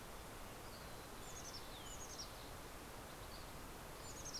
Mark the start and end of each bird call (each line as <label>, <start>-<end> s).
Mountain Chickadee (Poecile gambeli), 0.3-2.5 s
Fox Sparrow (Passerella iliaca), 2.7-4.4 s